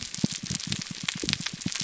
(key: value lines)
label: biophony, pulse
recorder: SoundTrap 300